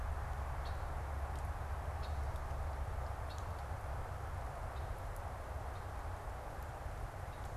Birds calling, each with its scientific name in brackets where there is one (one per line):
Red-winged Blackbird (Agelaius phoeniceus)